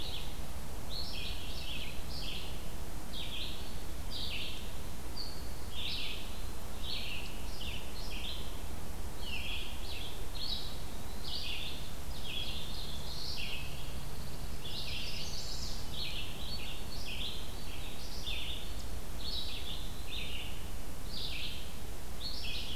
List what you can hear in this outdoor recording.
Red-eyed Vireo, Black-throated Blue Warbler, Pine Warbler, Chimney Swift, Eastern Wood-Pewee